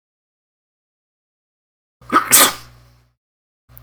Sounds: Sneeze